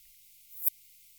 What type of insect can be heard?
orthopteran